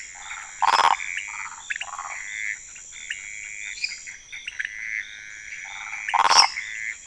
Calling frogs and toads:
waxy monkey tree frog (Phyllomedusa sauvagii), pointedbelly frog (Leptodactylus podicipinus), Pithecopus azureus, lesser tree frog (Dendropsophus minutus)
Cerrado, Brazil, 11:30pm

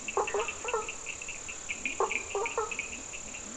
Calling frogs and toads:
Leptodactylus latrans, Cochran's lime tree frog (Sphaenorhynchus surdus), blacksmith tree frog (Boana faber)
Atlantic Forest, Brazil, 3:30am

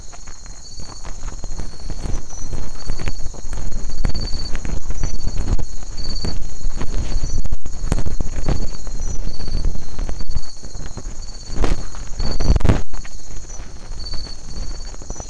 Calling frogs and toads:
none
Atlantic Forest, Brazil, 3:00am

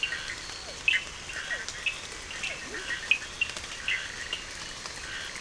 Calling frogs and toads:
two-colored oval frog (Elachistocleis bicolor), Physalaemus cuvieri, Bischoff's tree frog (Boana bischoffi), Scinax perereca, Cochran's lime tree frog (Sphaenorhynchus surdus), Leptodactylus latrans
Atlantic Forest, Brazil, 10:00pm

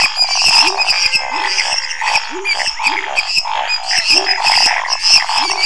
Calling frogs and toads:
waxy monkey tree frog (Phyllomedusa sauvagii), lesser tree frog (Dendropsophus minutus), pepper frog (Leptodactylus labyrinthicus), Scinax fuscovarius, menwig frog (Physalaemus albonotatus), Pithecopus azureus
Cerrado, Brazil, 10:15pm

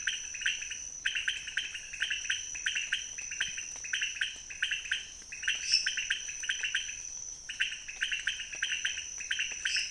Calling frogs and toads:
pointedbelly frog (Leptodactylus podicipinus), lesser tree frog (Dendropsophus minutus)
Cerrado, Brazil, 3:30am

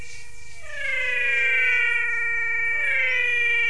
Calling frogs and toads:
menwig frog (Physalaemus albonotatus)
Cerrado, Brazil, 6:30pm

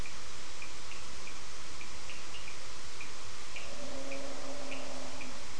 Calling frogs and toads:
Cochran's lime tree frog (Sphaenorhynchus surdus)
Atlantic Forest, Brazil, 7:00pm

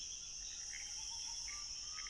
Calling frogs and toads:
Pithecopus azureus
Cerrado, Brazil, 11:30pm

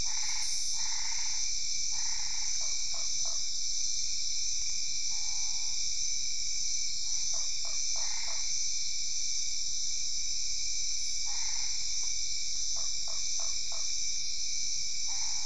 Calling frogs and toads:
Boana albopunctata, Usina tree frog (Boana lundii), Physalaemus cuvieri
Cerrado, Brazil, 8:00pm

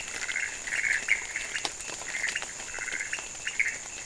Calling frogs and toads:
pointedbelly frog (Leptodactylus podicipinus), Pithecopus azureus
Cerrado, Brazil, 3:30am

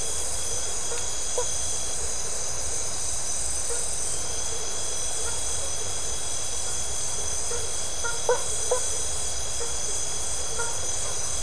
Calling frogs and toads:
blacksmith tree frog (Boana faber)
Atlantic Forest, Brazil, 1:30am

